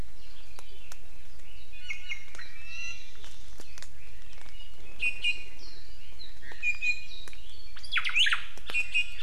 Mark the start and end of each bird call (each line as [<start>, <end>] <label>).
[1.70, 3.10] Iiwi (Drepanis coccinea)
[5.00, 5.70] Iiwi (Drepanis coccinea)
[5.60, 6.00] Warbling White-eye (Zosterops japonicus)
[6.40, 7.40] Iiwi (Drepanis coccinea)
[7.70, 8.40] Omao (Myadestes obscurus)
[8.60, 9.20] Iiwi (Drepanis coccinea)